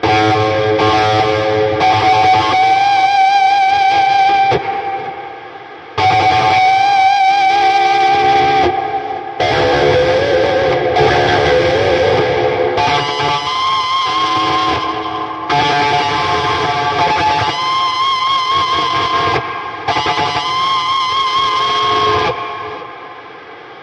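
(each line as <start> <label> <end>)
0.0 An electric guitar plays a rhythmic, melodic pattern. 19.8
19.8 An electric guitar plays a rhythmic, melodic pattern that gradually decreases. 23.6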